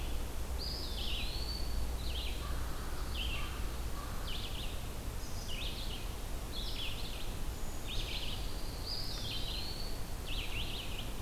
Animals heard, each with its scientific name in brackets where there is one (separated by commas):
American Robin (Turdus migratorius), Red-eyed Vireo (Vireo olivaceus), Eastern Wood-Pewee (Contopus virens), Brown Creeper (Certhia americana)